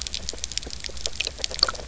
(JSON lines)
{"label": "biophony, grazing", "recorder": "SoundTrap 300"}